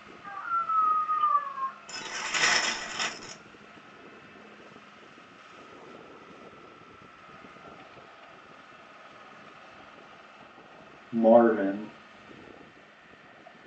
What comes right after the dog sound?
glass